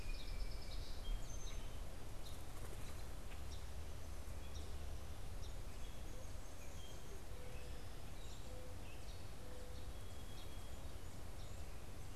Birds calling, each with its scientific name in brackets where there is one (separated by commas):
Gray Catbird (Dumetella carolinensis), Song Sparrow (Melospiza melodia), Mourning Dove (Zenaida macroura)